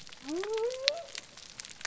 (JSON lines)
{"label": "biophony", "recorder": "SoundTrap 300"}